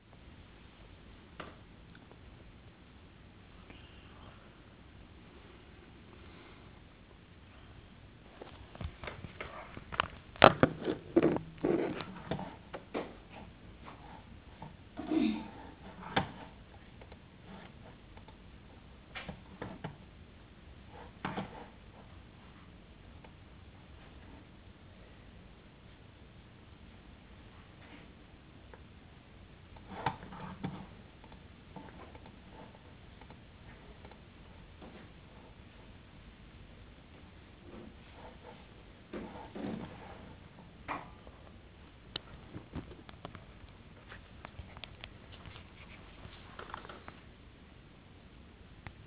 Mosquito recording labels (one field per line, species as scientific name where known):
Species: no mosquito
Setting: insect culture